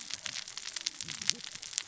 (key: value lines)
label: biophony, cascading saw
recorder: SoundTrap 600 or HydroMoth